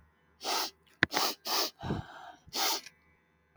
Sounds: Sniff